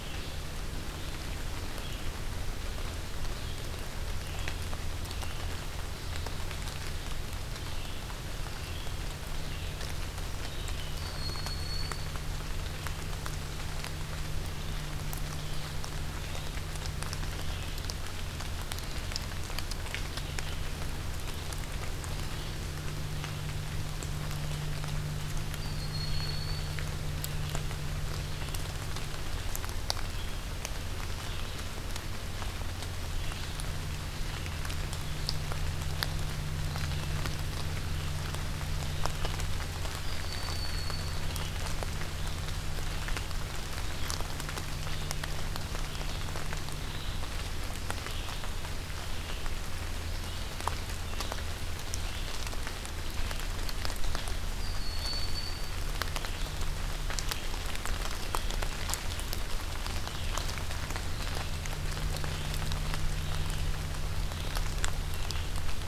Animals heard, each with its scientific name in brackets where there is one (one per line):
Red-eyed Vireo (Vireo olivaceus)
Broad-winged Hawk (Buteo platypterus)